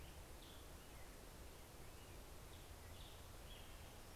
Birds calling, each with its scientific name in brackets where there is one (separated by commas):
Red-breasted Nuthatch (Sitta canadensis), American Robin (Turdus migratorius)